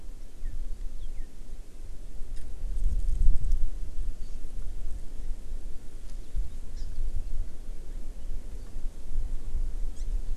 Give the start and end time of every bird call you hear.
[0.26, 0.56] Northern Cardinal (Cardinalis cardinalis)
[0.95, 1.25] Northern Cardinal (Cardinalis cardinalis)
[6.75, 6.86] Hawaii Amakihi (Chlorodrepanis virens)
[9.96, 10.05] Hawaii Amakihi (Chlorodrepanis virens)

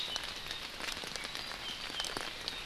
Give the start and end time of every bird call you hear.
[1.10, 2.60] Apapane (Himatione sanguinea)

